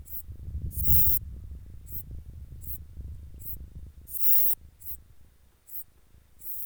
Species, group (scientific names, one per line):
Eupholidoptera forcipata
Orthoptera